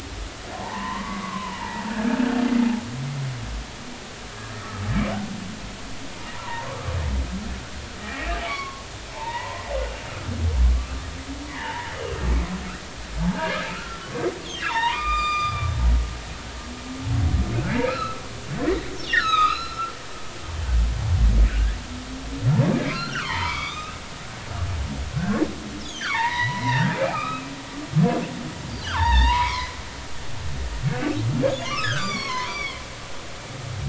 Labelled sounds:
1.0	1.3	humpback whale, 2.0 to 2.2 kHz
1.6	1.9	humpback whale, 0.83 to 0.99 kHz
4.5	4.8	humpback whale, 1.2 to 1.4 kHz
6.3	6.9	humpback whale, 0.86 to 1.3 kHz
8.0	9.6	humpback whale, 0.83 to 2.3 kHz
10.7	12.2	humpback whale, 0.83 to 3.0 kHz
13.2	14.1	humpback whale, 0.80 to 1.8 kHz
14.5	15.7	humpback whale, 0.83 to 7.3 kHz
16.0	18.2	humpback whale, 1.1 to 4.4 kHz
19.1	19.9	humpback whale, 0.99 to 5.9 kHz
21.5	21.8	humpback whale, 1.4 to 1.8 kHz
22.8	23.9	humpback whale, 0.86 to 5.0 kHz
25.8	27.9	humpback whale, 0.83 to 6.8 kHz
28.7	29.7	humpback whale, 0.83 to 4.9 kHz
31.5	32.8	humpback whale, 0.93 to 6.1 kHz

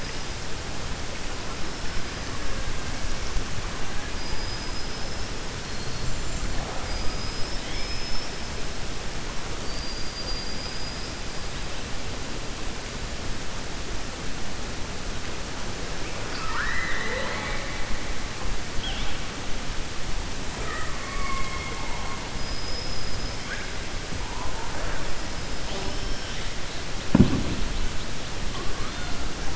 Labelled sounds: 4.1	5.3	killer whale, 4.8 to 5.4 kHz
9.6	11.1	killer whale, 4.6 to 5.4 kHz
16.2	17.8	killer whale, 0.49 to 5.0 kHz
22.3	23.4	killer whale, 4.9 to 5.3 kHz

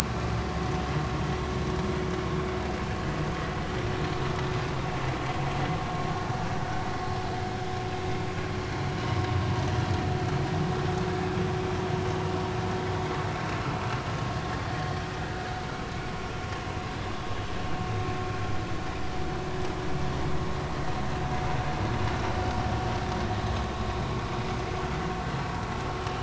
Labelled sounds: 1.0	1.3	vessel noise, 1.1 to 1.2 kHz

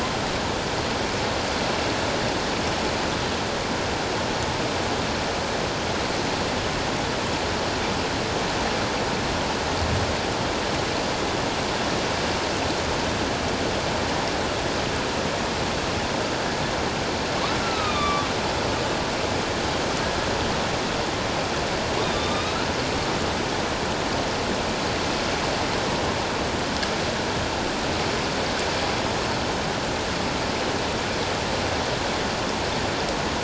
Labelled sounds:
17.6	18.3	killer whale, northern resident, A clan, AA subclan, call N04, 1.1 to 4.1 kHz
22.0	22.7	killer whale, northern resident, A clan, AA subclan, 1.1 to 4.2 kHz

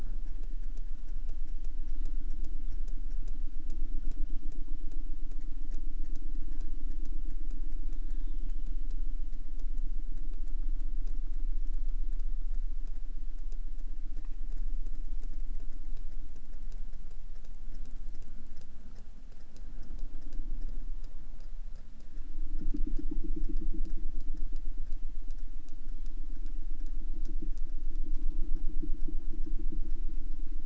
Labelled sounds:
7.9	8.7	killer whale, southern resident, J pod, call S04, 0.42 to 4.8 kHz

